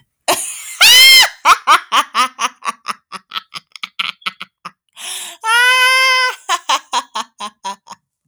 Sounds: Laughter